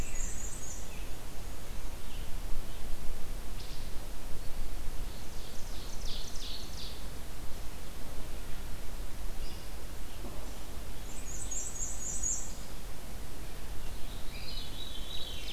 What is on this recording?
Black-and-white Warbler, Red-eyed Vireo, Ovenbird, Wood Thrush, Veery